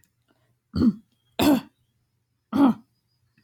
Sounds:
Throat clearing